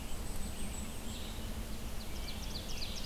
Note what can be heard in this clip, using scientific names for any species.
Setophaga striata, Vireo olivaceus, Seiurus aurocapilla, Turdus migratorius